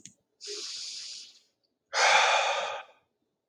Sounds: Sigh